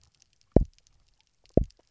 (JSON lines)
{"label": "biophony, double pulse", "recorder": "SoundTrap 300"}